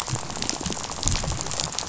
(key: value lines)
label: biophony, rattle
recorder: SoundTrap 500